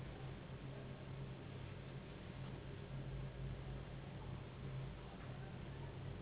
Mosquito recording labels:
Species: Anopheles gambiae s.s.; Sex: female; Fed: unfed; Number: one; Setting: insect culture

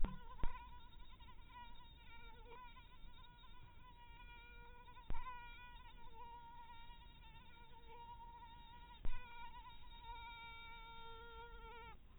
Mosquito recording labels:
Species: mosquito; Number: one; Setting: cup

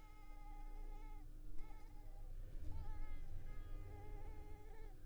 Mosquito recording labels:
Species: Culex pipiens complex; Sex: female; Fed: unfed; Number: one; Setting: cup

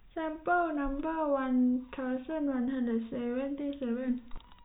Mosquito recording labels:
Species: no mosquito; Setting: cup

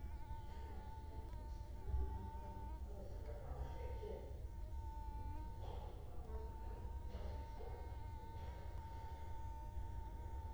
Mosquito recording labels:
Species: Culex quinquefasciatus; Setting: cup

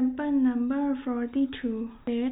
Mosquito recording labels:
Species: mosquito; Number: one; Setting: cup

